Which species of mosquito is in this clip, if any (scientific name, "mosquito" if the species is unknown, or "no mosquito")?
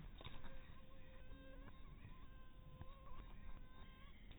mosquito